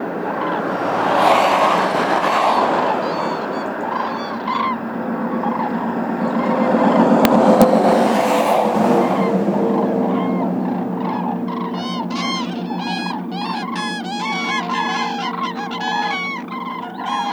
Is this near a roadway?
yes